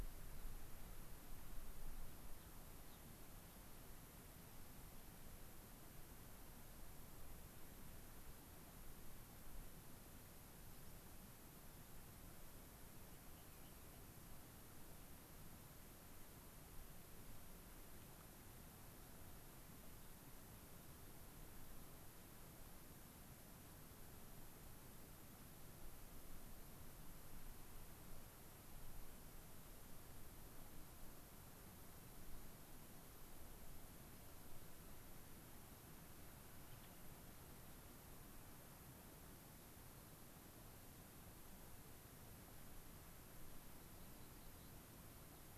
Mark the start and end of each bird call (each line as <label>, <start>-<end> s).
Gray-crowned Rosy-Finch (Leucosticte tephrocotis), 2.3-3.0 s
Rock Wren (Salpinctes obsoletus), 13.0-14.1 s
Gray-crowned Rosy-Finch (Leucosticte tephrocotis), 36.6-36.9 s
Rock Wren (Salpinctes obsoletus), 43.7-44.8 s